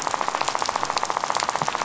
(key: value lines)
label: biophony, rattle
recorder: SoundTrap 500